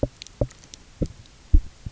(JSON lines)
{"label": "biophony, knock", "recorder": "SoundTrap 300"}